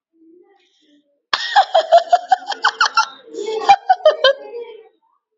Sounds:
Laughter